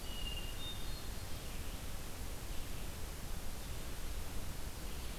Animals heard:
Hermit Thrush (Catharus guttatus)

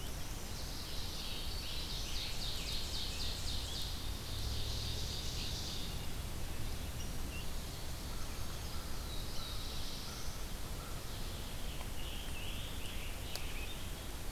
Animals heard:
American Crow (Corvus brachyrhynchos), Scarlet Tanager (Piranga olivacea), Black-throated Blue Warbler (Setophaga caerulescens), Ovenbird (Seiurus aurocapilla), Red-eyed Vireo (Vireo olivaceus)

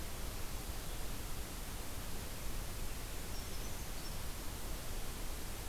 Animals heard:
Brown Creeper (Certhia americana)

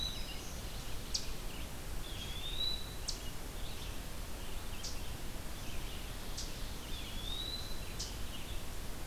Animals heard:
Eastern Wood-Pewee (Contopus virens), Red-eyed Vireo (Vireo olivaceus), Black-throated Green Warbler (Setophaga virens), Eastern Chipmunk (Tamias striatus)

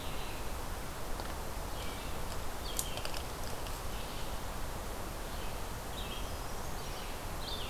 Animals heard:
Brown Creeper (Certhia americana), Red-eyed Vireo (Vireo olivaceus)

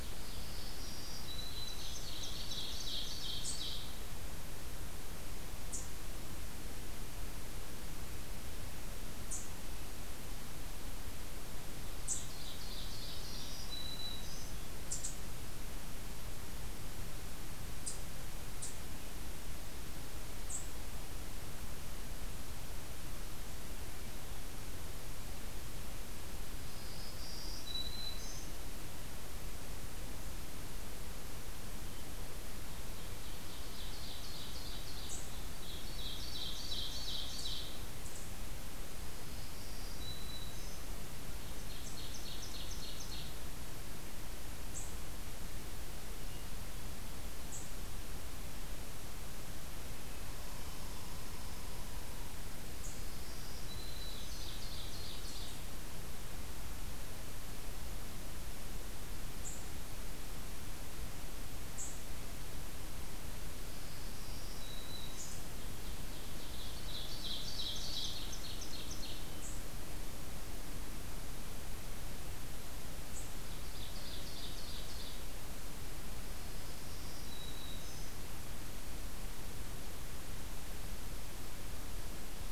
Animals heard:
unidentified call, Black-throated Green Warbler (Setophaga virens), Hermit Thrush (Catharus guttatus), Red Squirrel (Tamiasciurus hudsonicus), Ovenbird (Seiurus aurocapilla)

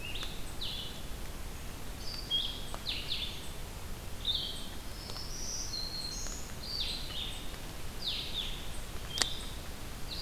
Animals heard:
Black-throated Green Warbler (Setophaga virens), Blue-headed Vireo (Vireo solitarius)

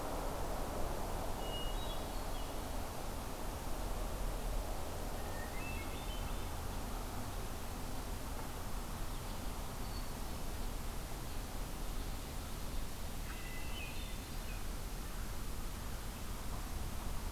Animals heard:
American Crow (Corvus brachyrhynchos), Hermit Thrush (Catharus guttatus)

